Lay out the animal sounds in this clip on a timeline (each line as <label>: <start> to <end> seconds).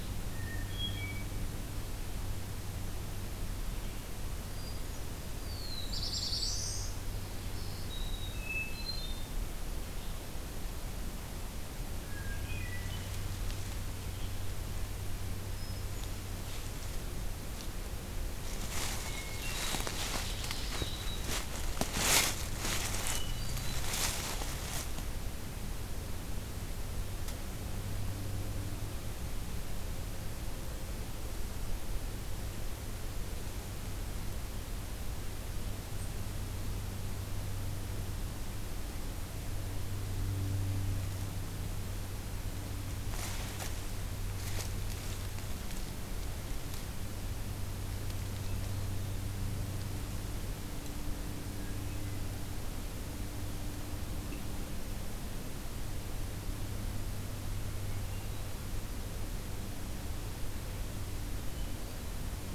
Hermit Thrush (Catharus guttatus): 0.3 to 1.3 seconds
Hermit Thrush (Catharus guttatus): 4.4 to 5.4 seconds
Black-throated Blue Warbler (Setophaga caerulescens): 5.3 to 7.0 seconds
Blackburnian Warbler (Setophaga fusca): 5.8 to 6.9 seconds
Black-throated Green Warbler (Setophaga virens): 7.4 to 8.5 seconds
Hermit Thrush (Catharus guttatus): 8.4 to 9.3 seconds
Hermit Thrush (Catharus guttatus): 12.1 to 13.0 seconds
Hermit Thrush (Catharus guttatus): 15.4 to 16.3 seconds
Hermit Thrush (Catharus guttatus): 19.4 to 20.3 seconds
Black-throated Green Warbler (Setophaga virens): 20.3 to 21.5 seconds
Hermit Thrush (Catharus guttatus): 22.8 to 23.9 seconds
Hermit Thrush (Catharus guttatus): 57.9 to 58.6 seconds